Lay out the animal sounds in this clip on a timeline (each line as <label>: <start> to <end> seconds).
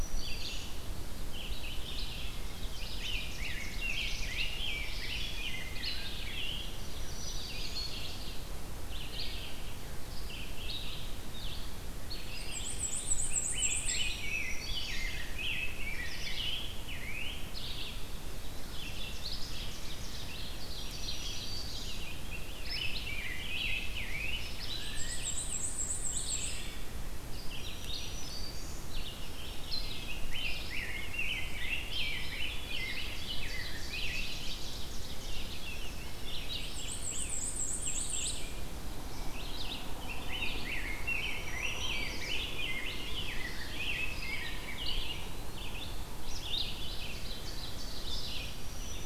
Black-throated Green Warbler (Setophaga virens): 0.0 to 0.8 seconds
Red-eyed Vireo (Vireo olivaceus): 0.0 to 49.1 seconds
Ovenbird (Seiurus aurocapilla): 2.3 to 4.6 seconds
Rose-breasted Grosbeak (Pheucticus ludovicianus): 2.8 to 6.8 seconds
Black-throated Green Warbler (Setophaga virens): 6.3 to 8.0 seconds
Black-and-white Warbler (Mniotilta varia): 12.3 to 14.1 seconds
Rose-breasted Grosbeak (Pheucticus ludovicianus): 13.1 to 17.4 seconds
Black-throated Green Warbler (Setophaga virens): 14.0 to 15.1 seconds
Ovenbird (Seiurus aurocapilla): 18.4 to 20.4 seconds
Black-throated Green Warbler (Setophaga virens): 20.5 to 21.9 seconds
Rose-breasted Grosbeak (Pheucticus ludovicianus): 22.2 to 24.4 seconds
Black-and-white Warbler (Mniotilta varia): 24.7 to 26.7 seconds
Black-throated Green Warbler (Setophaga virens): 27.4 to 28.8 seconds
Black-throated Green Warbler (Setophaga virens): 29.2 to 29.8 seconds
Rose-breasted Grosbeak (Pheucticus ludovicianus): 30.3 to 34.2 seconds
Ovenbird (Seiurus aurocapilla): 32.8 to 35.6 seconds
Black-throated Green Warbler (Setophaga virens): 35.7 to 37.1 seconds
Black-and-white Warbler (Mniotilta varia): 36.6 to 38.5 seconds
Rose-breasted Grosbeak (Pheucticus ludovicianus): 40.2 to 44.1 seconds
Black-throated Green Warbler (Setophaga virens): 40.8 to 42.4 seconds
Eastern Wood-Pewee (Contopus virens): 45.0 to 45.7 seconds
Ovenbird (Seiurus aurocapilla): 46.4 to 48.3 seconds
Black-throated Green Warbler (Setophaga virens): 48.3 to 49.1 seconds